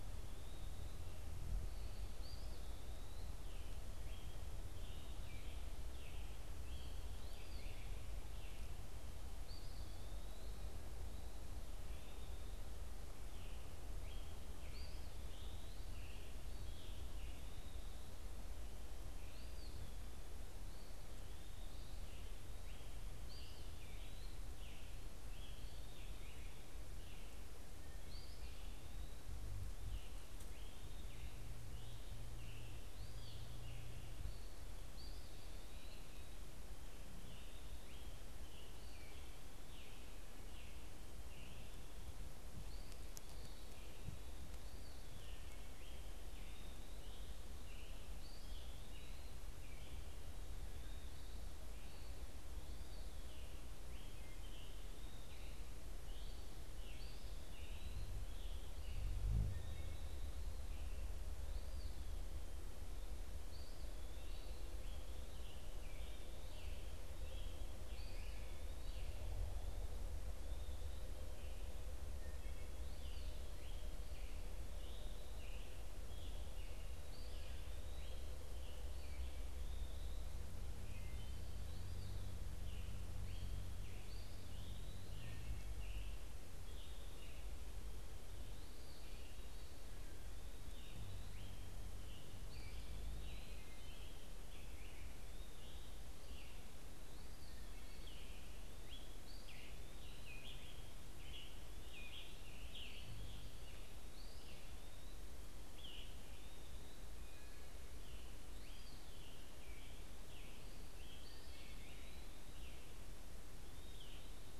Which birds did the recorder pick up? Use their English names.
Eastern Wood-Pewee, unidentified bird, Red-eyed Vireo, Scarlet Tanager